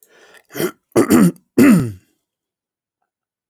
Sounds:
Throat clearing